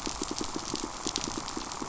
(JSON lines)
{"label": "biophony, pulse", "recorder": "SoundTrap 500"}